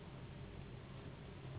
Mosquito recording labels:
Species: Anopheles gambiae s.s.; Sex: female; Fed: unfed; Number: one; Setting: insect culture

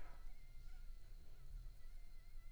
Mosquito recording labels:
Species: Anopheles arabiensis; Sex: female; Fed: unfed; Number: one; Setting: cup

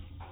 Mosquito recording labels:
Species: mosquito; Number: one; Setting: cup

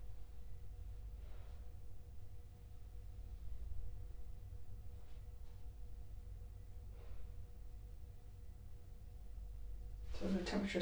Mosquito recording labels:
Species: Culex quinquefasciatus; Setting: cup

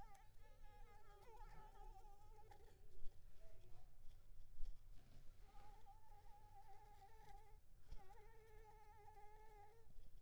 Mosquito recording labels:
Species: Anopheles arabiensis; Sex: female; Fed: unfed; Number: one; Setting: cup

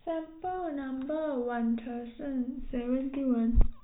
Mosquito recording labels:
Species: no mosquito; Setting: cup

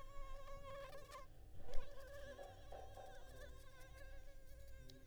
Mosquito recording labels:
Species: Anopheles arabiensis; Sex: female; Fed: unfed; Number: one; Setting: cup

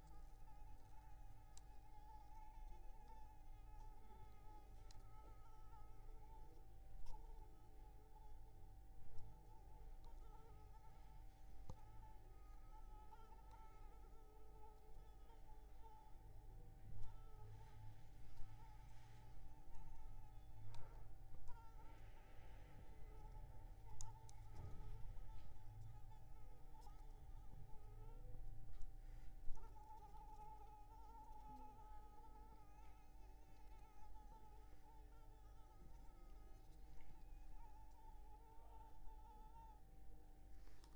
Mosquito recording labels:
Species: Anopheles arabiensis; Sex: female; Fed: unfed; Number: one; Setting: cup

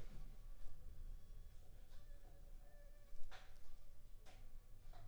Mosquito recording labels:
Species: Anopheles funestus s.s.; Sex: female; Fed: unfed; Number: one; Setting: cup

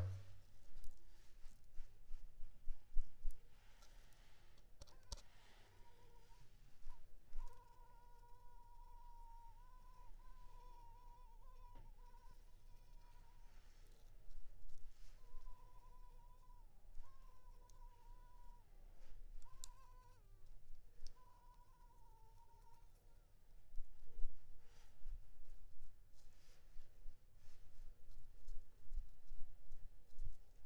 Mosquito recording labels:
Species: Culex pipiens complex; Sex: female; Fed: unfed; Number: one; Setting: cup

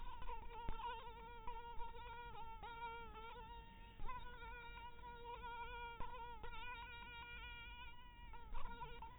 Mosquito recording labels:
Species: mosquito; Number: one; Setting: cup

